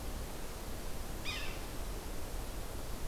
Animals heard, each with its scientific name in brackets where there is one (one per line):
Yellow-bellied Sapsucker (Sphyrapicus varius)